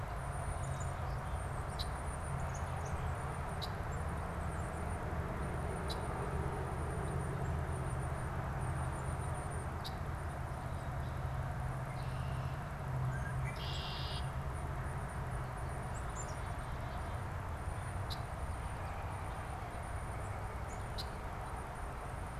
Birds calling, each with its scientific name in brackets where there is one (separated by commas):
Tufted Titmouse (Baeolophus bicolor), Red-winged Blackbird (Agelaius phoeniceus), Black-capped Chickadee (Poecile atricapillus)